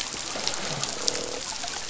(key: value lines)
label: biophony, croak
recorder: SoundTrap 500